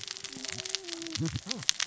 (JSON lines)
{"label": "biophony, cascading saw", "recorder": "SoundTrap 600 or HydroMoth"}